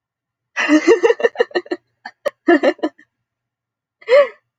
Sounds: Laughter